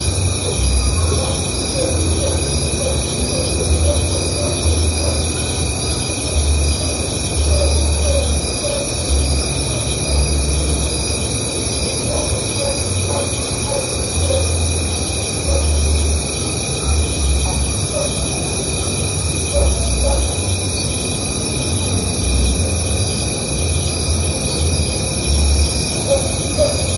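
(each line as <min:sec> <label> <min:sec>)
0:00.0 Crickets chirp at night with a dog barking very quietly in the distance. 0:27.0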